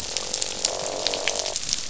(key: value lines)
label: biophony, croak
recorder: SoundTrap 500